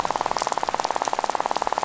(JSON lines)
{"label": "biophony, rattle", "recorder": "SoundTrap 500"}